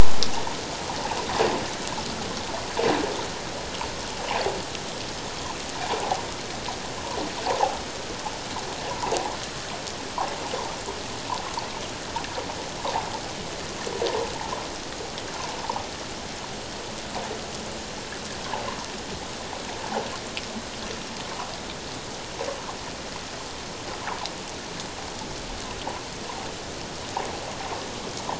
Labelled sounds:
7.5	7.8	water noise, 0.78 to 1.1 kHz

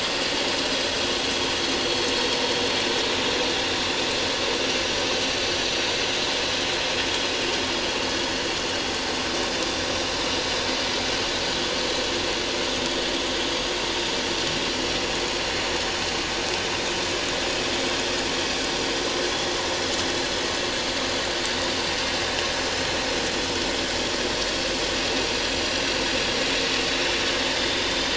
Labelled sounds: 6.2	6.5	vessel noise, 5.1 to 5.2 kHz
22.6	22.9	vessel noise, 5.1 to 5.2 kHz
27.5	28.1	vessel noise, 3.5 to 3.7 kHz

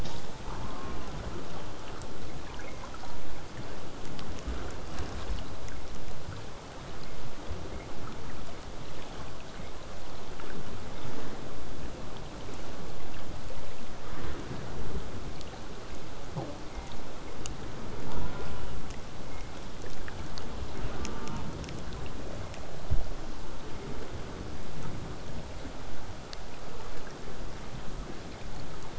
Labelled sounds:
0.5	1.1	killer whale, southern resident, J pod, call S04, 0.12 to 1.5 kHz
18.1	18.8	killer whale, southern resident, J pod, call S04, 0.20 to 3.9 kHz
20.9	21.5	killer whale, southern resident, J pod, call S04, 0.31 to 3.2 kHz

